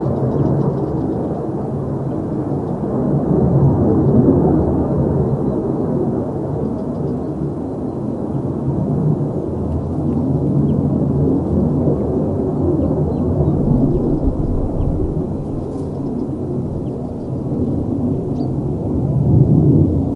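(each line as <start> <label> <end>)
0.1 An aircraft passes overhead while goats move nearby, their bells jingling softly. 20.2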